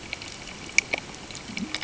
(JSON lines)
{"label": "ambient", "recorder": "HydroMoth"}